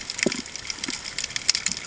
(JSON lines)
{"label": "ambient", "recorder": "HydroMoth"}